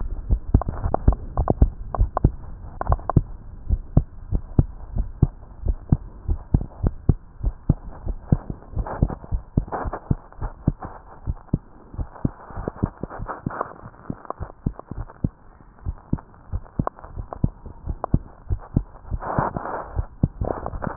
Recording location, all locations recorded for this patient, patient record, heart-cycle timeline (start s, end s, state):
tricuspid valve (TV)
aortic valve (AV)+pulmonary valve (PV)+tricuspid valve (TV)+mitral valve (MV)
#Age: Child
#Sex: Female
#Height: 119.0 cm
#Weight: 19.8 kg
#Pregnancy status: False
#Murmur: Absent
#Murmur locations: nan
#Most audible location: nan
#Systolic murmur timing: nan
#Systolic murmur shape: nan
#Systolic murmur grading: nan
#Systolic murmur pitch: nan
#Systolic murmur quality: nan
#Diastolic murmur timing: nan
#Diastolic murmur shape: nan
#Diastolic murmur grading: nan
#Diastolic murmur pitch: nan
#Diastolic murmur quality: nan
#Outcome: Normal
#Campaign: 2015 screening campaign
0.00	3.34	unannotated
3.34	3.68	diastole
3.68	3.84	S1
3.84	3.92	systole
3.92	4.06	S2
4.06	4.30	diastole
4.30	4.44	S1
4.44	4.56	systole
4.56	4.70	S2
4.70	4.94	diastole
4.94	5.08	S1
5.08	5.20	systole
5.20	5.34	S2
5.34	5.64	diastole
5.64	5.78	S1
5.78	5.90	systole
5.90	6.00	S2
6.00	6.26	diastole
6.26	6.40	S1
6.40	6.50	systole
6.50	6.62	S2
6.62	6.82	diastole
6.82	6.94	S1
6.94	7.04	systole
7.04	7.18	S2
7.18	7.42	diastole
7.42	7.56	S1
7.56	7.68	systole
7.68	7.78	S2
7.78	8.04	diastole
8.04	8.18	S1
8.18	8.30	systole
8.30	8.42	S2
8.42	8.74	diastole
8.74	8.88	S1
8.88	9.00	systole
9.00	9.12	S2
9.12	9.30	diastole
9.30	9.44	S1
9.44	9.56	systole
9.56	9.66	S2
9.66	9.86	diastole
9.86	9.94	S1
9.94	10.06	systole
10.06	10.18	S2
10.18	10.42	diastole
10.42	10.54	S1
10.54	10.64	systole
10.64	10.76	S2
10.76	11.26	diastole
11.26	11.38	S1
11.38	11.51	systole
11.51	11.64	S2
11.64	11.98	diastole
11.98	12.08	S1
12.08	12.24	systole
12.24	12.34	S2
12.34	12.58	diastole
12.58	12.66	S1
12.66	12.82	systole
12.82	12.92	S2
12.92	13.20	diastole
13.20	13.28	S1
13.28	20.96	unannotated